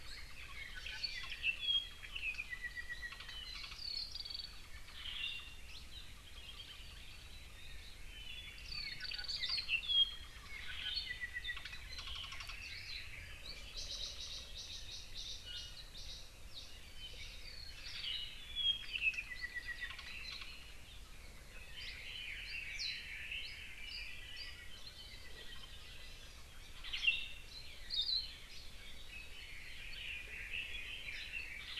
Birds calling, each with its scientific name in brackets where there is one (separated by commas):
Hawaii Creeper (Loxops mana), Hawaii Akepa (Loxops coccineus), Apapane (Himatione sanguinea), Red-billed Leiothrix (Leiothrix lutea), Hawaii Amakihi (Chlorodrepanis virens)